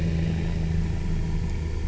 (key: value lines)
label: anthrophony, boat engine
recorder: SoundTrap 300